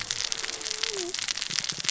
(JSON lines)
{"label": "biophony, cascading saw", "recorder": "SoundTrap 600 or HydroMoth"}